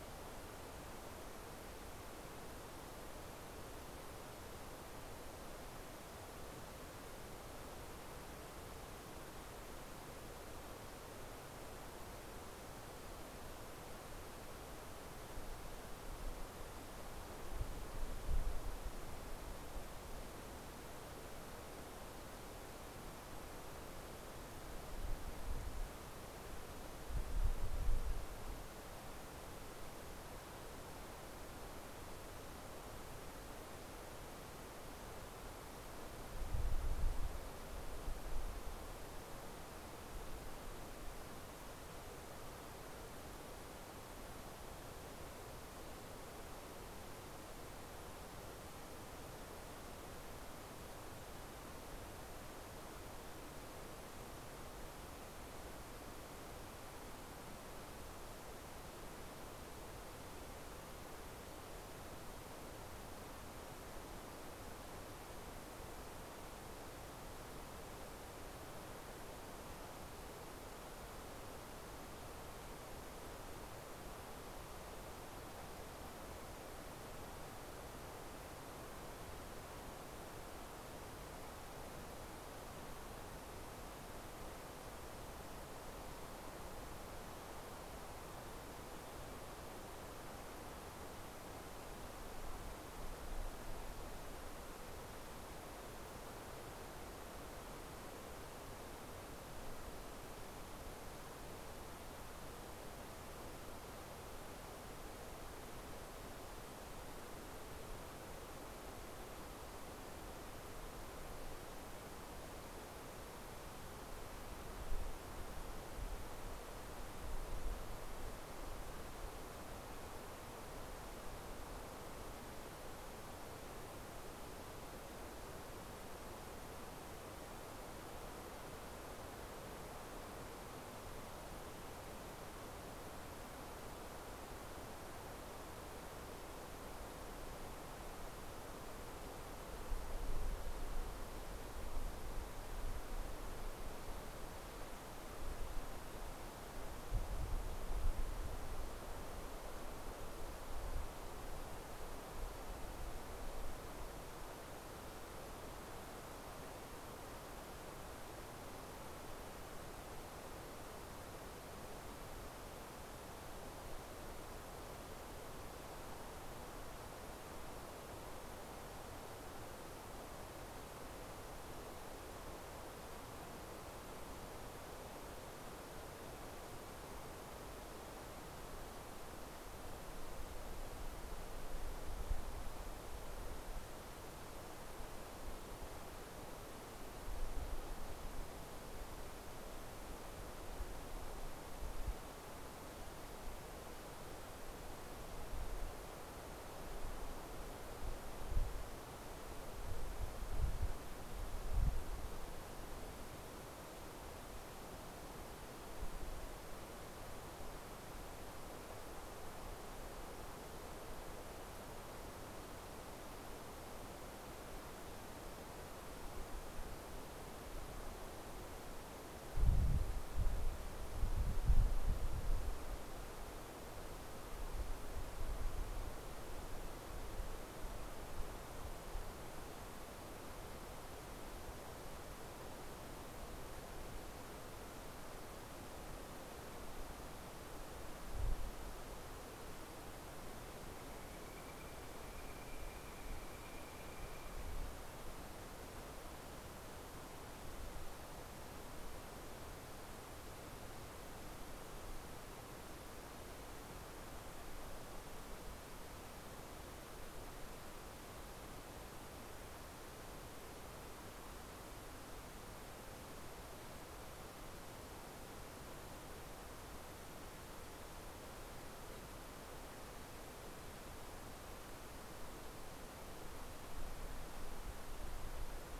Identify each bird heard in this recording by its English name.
Northern Flicker